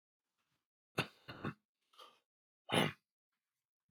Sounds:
Throat clearing